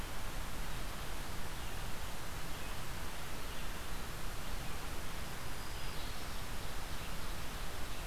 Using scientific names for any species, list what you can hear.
Vireo olivaceus, Setophaga virens